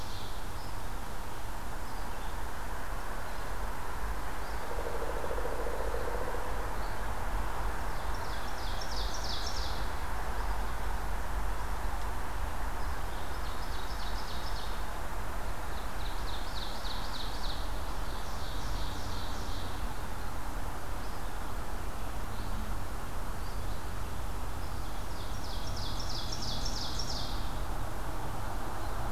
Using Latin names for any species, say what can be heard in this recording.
Seiurus aurocapilla, Vireo olivaceus, Dryocopus pileatus